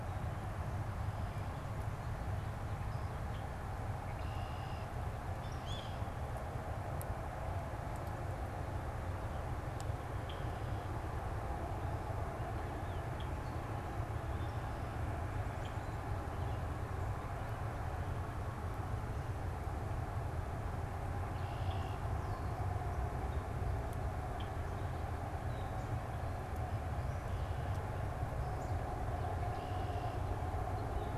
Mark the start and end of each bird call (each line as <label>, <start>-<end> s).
Red-winged Blackbird (Agelaius phoeniceus), 3.8-5.0 s
unidentified bird, 5.3-6.2 s
Red-winged Blackbird (Agelaius phoeniceus), 10.0-15.9 s
Red-winged Blackbird (Agelaius phoeniceus), 21.1-21.9 s
Red-winged Blackbird (Agelaius phoeniceus), 29.2-30.3 s